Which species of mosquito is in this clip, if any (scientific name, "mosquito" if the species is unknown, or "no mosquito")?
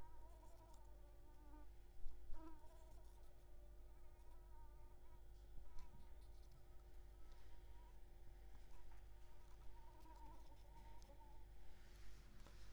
Anopheles coustani